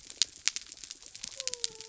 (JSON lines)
{"label": "biophony", "recorder": "SoundTrap 300"}